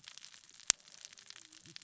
{"label": "biophony, cascading saw", "recorder": "SoundTrap 600 or HydroMoth"}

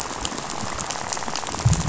{"label": "biophony, rattle", "recorder": "SoundTrap 500"}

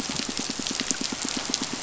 {"label": "biophony, pulse", "recorder": "SoundTrap 500"}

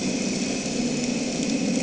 {"label": "anthrophony, boat engine", "recorder": "HydroMoth"}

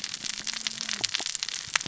{"label": "biophony, cascading saw", "recorder": "SoundTrap 600 or HydroMoth"}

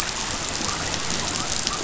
{"label": "biophony", "recorder": "SoundTrap 500"}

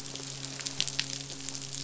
{"label": "biophony, midshipman", "recorder": "SoundTrap 500"}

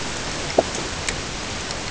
{"label": "ambient", "recorder": "HydroMoth"}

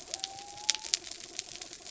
{"label": "anthrophony, mechanical", "recorder": "SoundTrap 300"}
{"label": "biophony", "recorder": "SoundTrap 300"}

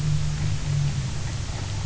{"label": "anthrophony, boat engine", "recorder": "SoundTrap 300"}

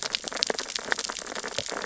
{"label": "biophony, sea urchins (Echinidae)", "recorder": "SoundTrap 600 or HydroMoth"}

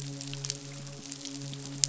{"label": "biophony, midshipman", "recorder": "SoundTrap 500"}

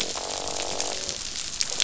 {"label": "biophony, croak", "recorder": "SoundTrap 500"}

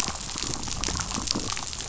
{"label": "biophony", "recorder": "SoundTrap 500"}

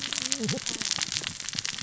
{"label": "biophony, cascading saw", "recorder": "SoundTrap 600 or HydroMoth"}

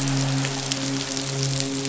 {"label": "biophony, midshipman", "recorder": "SoundTrap 500"}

